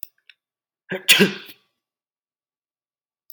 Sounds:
Sneeze